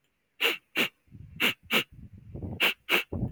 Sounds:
Sniff